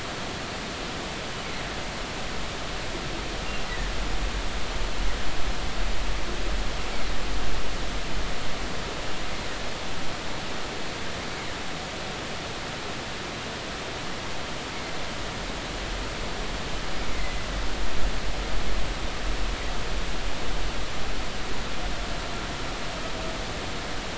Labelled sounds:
17.1	17.4	humpback whale, 2.0 to 2.1 kHz

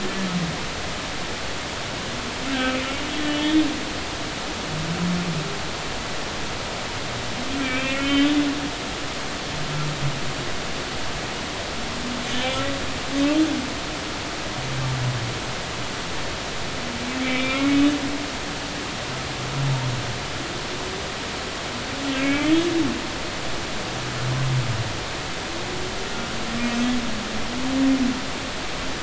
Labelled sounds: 3.1	3.7	humpback whale, 2.9 to 3.8 kHz
7.6	8.3	humpback whale, 1.3 to 3.2 kHz
12.3	12.6	humpback whale, 2.9 to 3.2 kHz
17.2	17.8	humpback whale, 2.0 to 2.5 kHz
22.2	22.5	humpback whale, 2.1 to 2.6 kHz

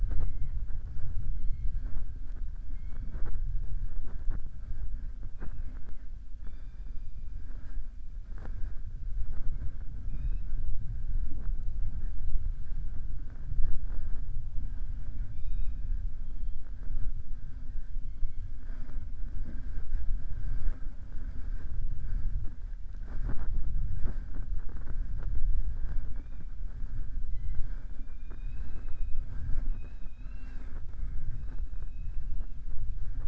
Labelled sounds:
14.6	15.8	killer whale, southern resident, 0.74 to 4.9 kHz

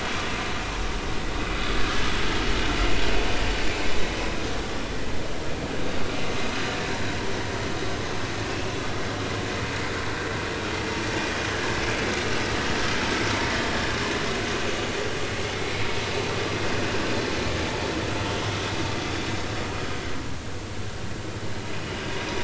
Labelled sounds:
6.5	6.7	vessel noise, 3.9 to 4.2 kHz

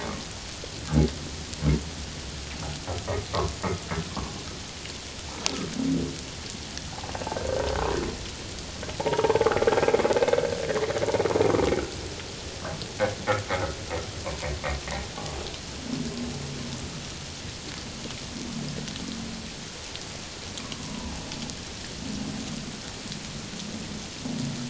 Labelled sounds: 9.0	9.6	humpback whale, 0.78 to 1.1 kHz
14.2	14.5	humpback whale, 0.88 to 1.2 kHz
20.8	21.1	humpback whale, 0.88 to 1.1 kHz

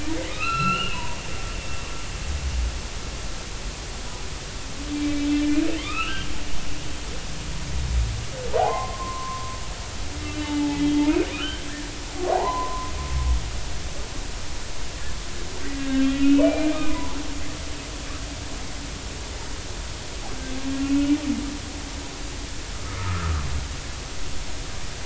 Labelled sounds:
0.3	1.2	humpback whale, 0.90 to 4.2 kHz
4.9	5.3	humpback whale, 2.3 to 2.4 kHz
5.8	6.3	humpback whale, 1.1 to 3.2 kHz
8.6	11.0	humpback whale, 0.80 to 3.3 kHz
11.3	12.9	humpback whale, 0.80 to 3.2 kHz
15.8	17.2	humpback whale, 0.83 to 3.4 kHz
23.0	23.4	humpback whale, 1.1 to 1.4 kHz

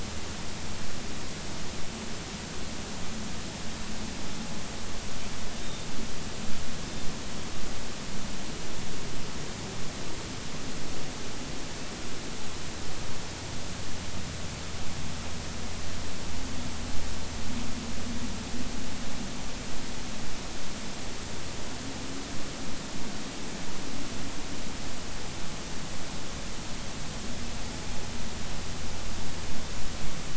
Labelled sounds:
5.6	5.8	Pacific white-sided dolphin, 3.6 to 3.8 kHz

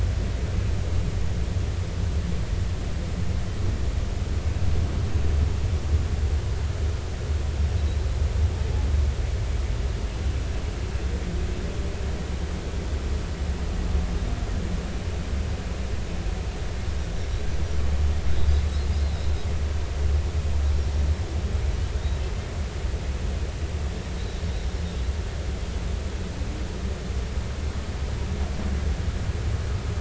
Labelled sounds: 21.9	22.2	Pacific white-sided dolphin, 3.6 to 3.9 kHz

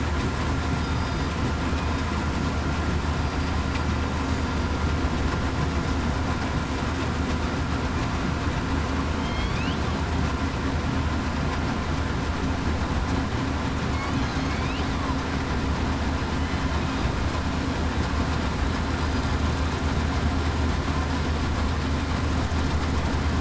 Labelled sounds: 0.8	1.3	killer whale, southern resident, 4.9 to 5.0 kHz
9.2	9.5	killer whale, southern resident, 3.1 to 3.4 kHz

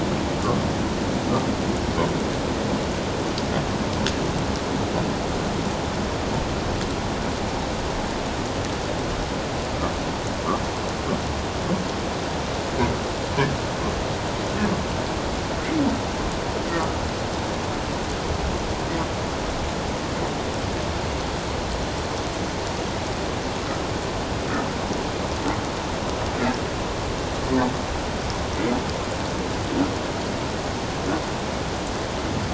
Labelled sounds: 16.7	17.0	humpback whale, 1.2 to 1.4 kHz

